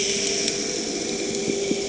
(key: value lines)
label: anthrophony, boat engine
recorder: HydroMoth